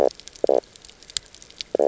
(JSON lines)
{"label": "biophony, knock croak", "recorder": "SoundTrap 300"}